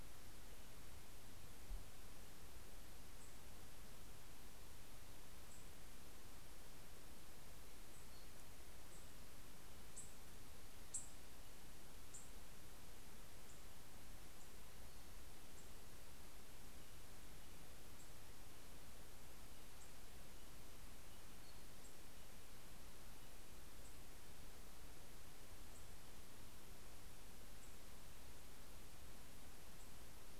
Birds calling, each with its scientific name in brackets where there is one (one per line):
Nashville Warbler (Leiothlypis ruficapilla)